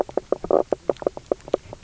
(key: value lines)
label: biophony, knock croak
recorder: SoundTrap 300